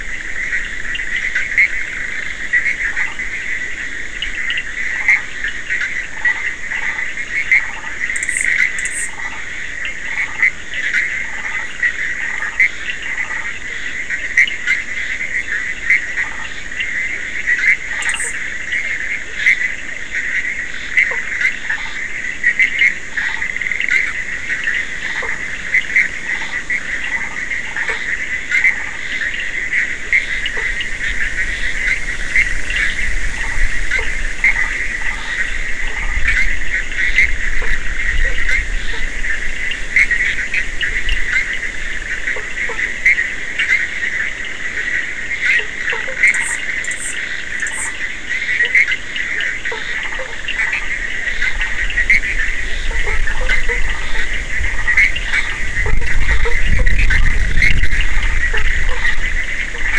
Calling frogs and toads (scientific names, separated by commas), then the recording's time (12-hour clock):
Boana bischoffi, Sphaenorhynchus surdus, Boana prasina, Boana faber
1:30am